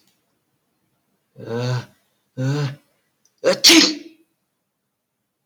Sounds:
Sneeze